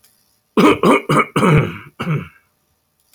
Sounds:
Throat clearing